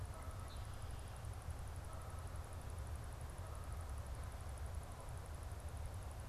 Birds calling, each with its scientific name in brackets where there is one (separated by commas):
Canada Goose (Branta canadensis)